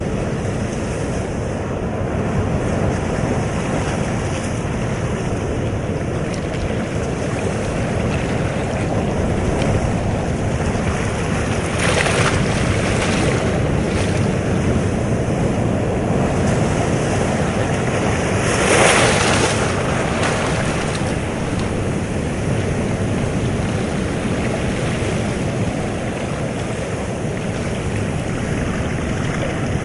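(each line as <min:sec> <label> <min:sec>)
0:00.0 Heavy wind blowing at the coast. 0:29.8
0:00.0 The sound of sea waves at the coast. 0:29.8
0:06.2 Light splashing of waves hitting rocks on a coastline. 0:06.8
0:11.7 Waves splash against the rocks on a coastline. 0:13.6
0:18.3 Waves splash against the rocks on a coastline. 0:19.9
0:28.7 Light splashing of waves hitting rocks on a coastline. 0:29.8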